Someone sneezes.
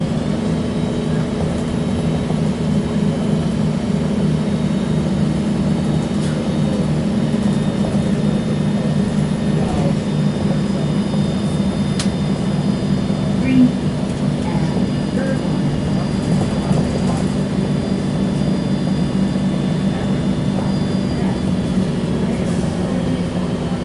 6.1 6.6

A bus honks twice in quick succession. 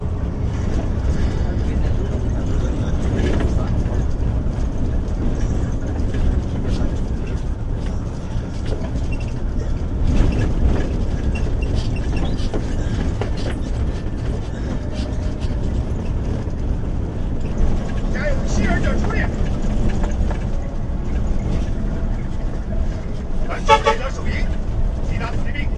23.7 24.0

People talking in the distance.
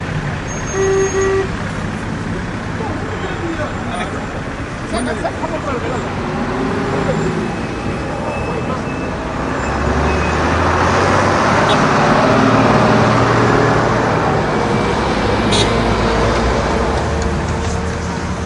2.7 17.4

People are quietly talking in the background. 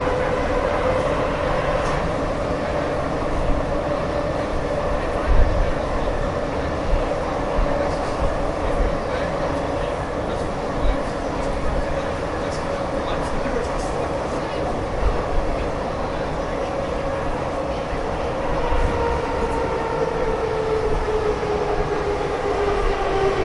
5.0 23.4

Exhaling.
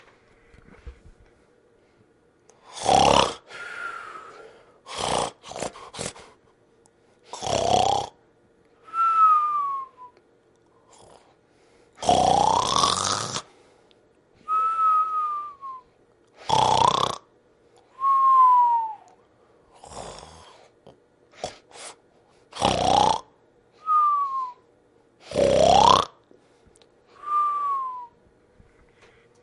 3.5 4.4

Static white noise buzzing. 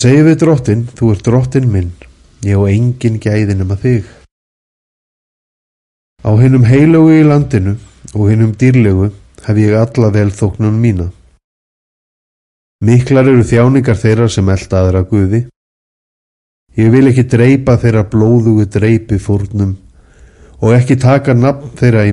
2.1 2.4, 7.8 8.1, 9.1 9.5

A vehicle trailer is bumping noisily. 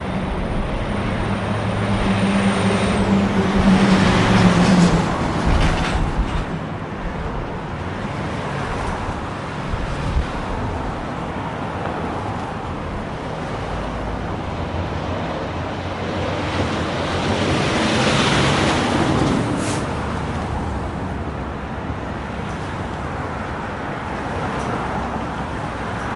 5.3 6.5

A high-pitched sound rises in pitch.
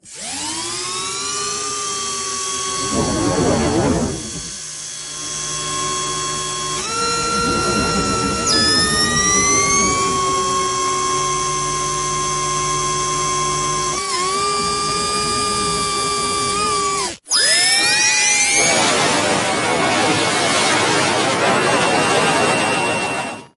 8.5 10.7

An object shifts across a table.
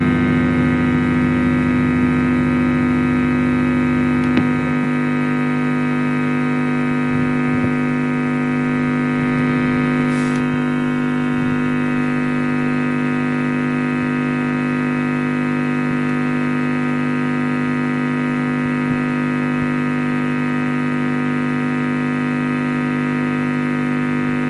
9.9 10.8

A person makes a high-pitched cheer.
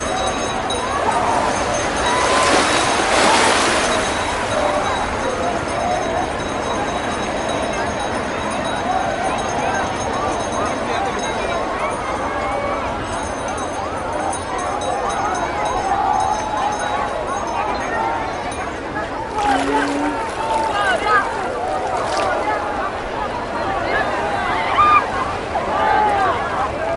24.7 25.1

